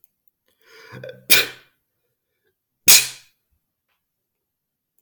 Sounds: Sneeze